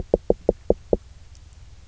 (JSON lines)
{"label": "biophony, knock", "recorder": "SoundTrap 300"}